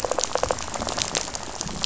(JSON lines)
{"label": "biophony, rattle", "recorder": "SoundTrap 500"}